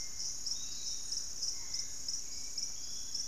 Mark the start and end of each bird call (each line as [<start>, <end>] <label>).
[0.00, 3.28] Barred Forest-Falcon (Micrastur ruficollis)
[0.00, 3.28] Hauxwell's Thrush (Turdus hauxwelli)
[0.00, 3.28] Piratic Flycatcher (Legatus leucophaius)
[1.82, 3.28] Fasciated Antshrike (Cymbilaimus lineatus)